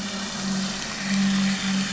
{"label": "anthrophony, boat engine", "recorder": "SoundTrap 500"}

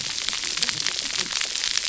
{"label": "biophony, cascading saw", "recorder": "SoundTrap 300"}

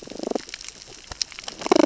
{"label": "biophony, damselfish", "recorder": "SoundTrap 600 or HydroMoth"}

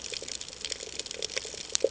{"label": "ambient", "recorder": "HydroMoth"}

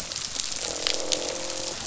{"label": "biophony, croak", "recorder": "SoundTrap 500"}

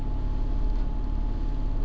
{"label": "anthrophony, boat engine", "recorder": "SoundTrap 300"}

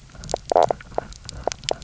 {"label": "biophony, knock croak", "recorder": "SoundTrap 300"}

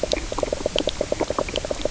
{"label": "biophony, knock croak", "recorder": "SoundTrap 300"}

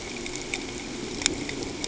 {"label": "ambient", "recorder": "HydroMoth"}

